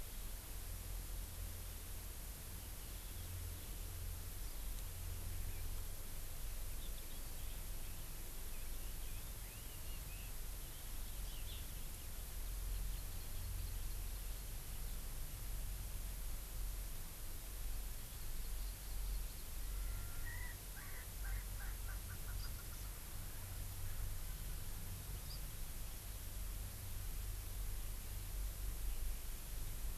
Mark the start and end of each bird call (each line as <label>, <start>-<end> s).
Red-billed Leiothrix (Leiothrix lutea), 8.5-10.4 s
Hawaii Amakihi (Chlorodrepanis virens), 12.8-14.0 s
Hawaii Amakihi (Chlorodrepanis virens), 18.2-19.5 s
Erckel's Francolin (Pternistis erckelii), 19.6-23.0 s